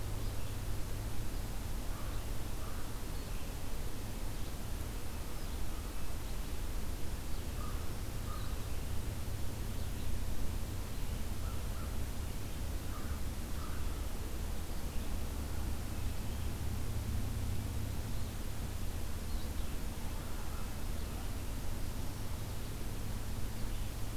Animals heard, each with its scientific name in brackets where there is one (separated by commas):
American Crow (Corvus brachyrhynchos), Red-eyed Vireo (Vireo olivaceus)